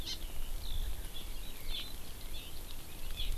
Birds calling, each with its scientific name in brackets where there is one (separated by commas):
Hawaii Amakihi (Chlorodrepanis virens), Eurasian Skylark (Alauda arvensis)